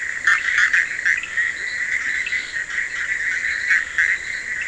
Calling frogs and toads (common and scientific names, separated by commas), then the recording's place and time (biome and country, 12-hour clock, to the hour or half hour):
Bischoff's tree frog (Boana bischoffi), fine-lined tree frog (Boana leptolineata), Scinax perereca
Atlantic Forest, Brazil, 12:30am